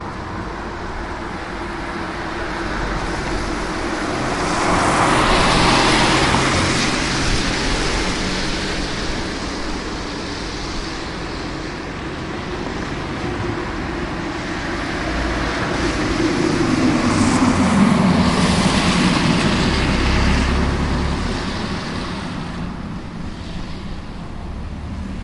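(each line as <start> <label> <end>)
0.0 A car splashes through a wet road. 25.2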